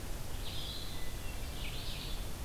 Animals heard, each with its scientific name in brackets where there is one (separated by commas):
Red-eyed Vireo (Vireo olivaceus), Hermit Thrush (Catharus guttatus)